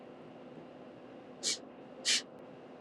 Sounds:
Sniff